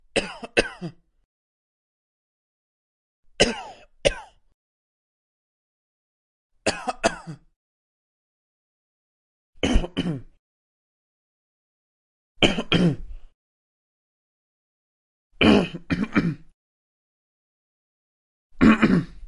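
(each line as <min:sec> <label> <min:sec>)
0:00.0 A man coughs lightly and clears his throat at varying intervals. 0:19.3
0:00.1 A man coughs. 0:00.9
0:03.3 A man coughs lightly. 0:04.2
0:06.6 A man coughs lightly. 0:07.4
0:09.6 A man coughs lightly. 0:10.2
0:12.4 A man is coughing. 0:13.2
0:15.4 A man clears his throat after coughing. 0:16.4
0:18.5 A man clearing his throat after coughing. 0:19.1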